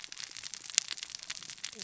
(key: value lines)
label: biophony, cascading saw
recorder: SoundTrap 600 or HydroMoth